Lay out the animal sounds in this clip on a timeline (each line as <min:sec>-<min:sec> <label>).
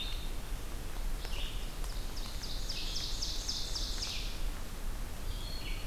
0:00.0-0:05.9 Red-eyed Vireo (Vireo olivaceus)
0:01.5-0:04.6 Ovenbird (Seiurus aurocapilla)